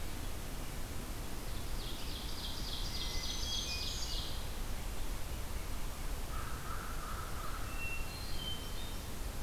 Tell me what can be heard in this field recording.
Ovenbird, Black-throated Green Warbler, Hermit Thrush, American Crow